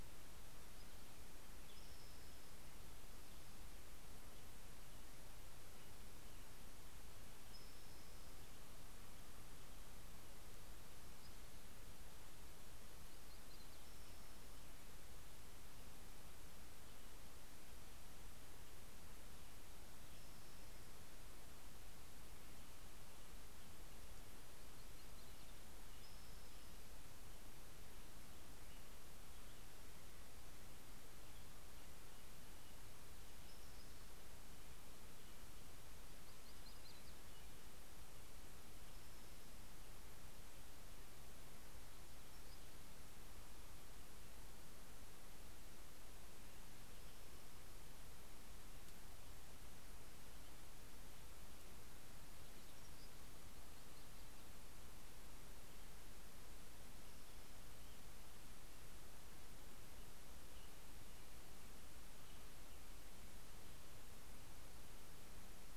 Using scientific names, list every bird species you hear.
Pipilo maculatus, Turdus migratorius, Setophaga coronata